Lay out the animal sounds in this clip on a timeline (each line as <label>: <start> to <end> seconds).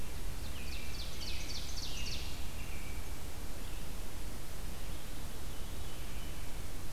Red-eyed Vireo (Vireo olivaceus): 0.0 to 5.2 seconds
Ovenbird (Seiurus aurocapilla): 0.2 to 2.6 seconds
American Robin (Turdus migratorius): 0.2 to 3.2 seconds
Veery (Catharus fuscescens): 5.2 to 6.6 seconds